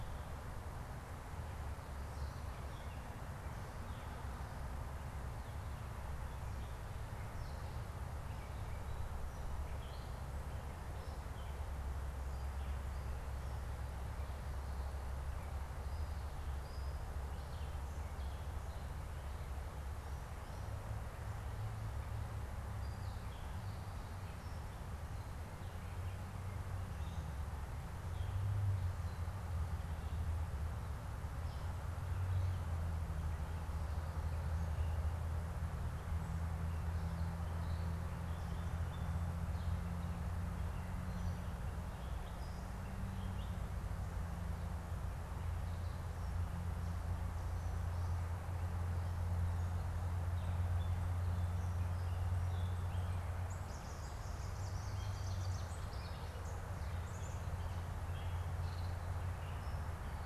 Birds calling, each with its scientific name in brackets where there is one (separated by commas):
Gray Catbird (Dumetella carolinensis), Ovenbird (Seiurus aurocapilla)